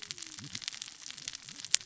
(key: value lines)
label: biophony, cascading saw
recorder: SoundTrap 600 or HydroMoth